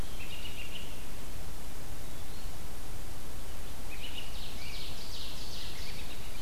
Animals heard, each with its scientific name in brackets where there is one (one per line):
Eastern Wood-Pewee (Contopus virens)
American Robin (Turdus migratorius)
Ovenbird (Seiurus aurocapilla)